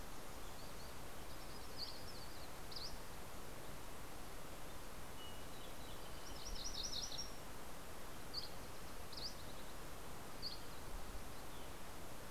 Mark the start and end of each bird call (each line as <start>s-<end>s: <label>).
0.6s-2.8s: Yellow-rumped Warbler (Setophaga coronata)
5.6s-7.8s: MacGillivray's Warbler (Geothlypis tolmiei)
7.7s-11.2s: Dusky Flycatcher (Empidonax oberholseri)